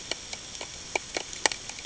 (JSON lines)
{"label": "ambient", "recorder": "HydroMoth"}